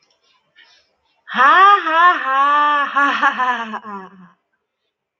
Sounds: Laughter